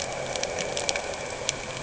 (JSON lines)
{"label": "anthrophony, boat engine", "recorder": "HydroMoth"}